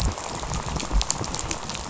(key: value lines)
label: biophony, rattle
recorder: SoundTrap 500